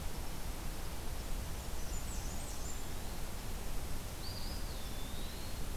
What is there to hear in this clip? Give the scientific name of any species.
Setophaga fusca, Contopus virens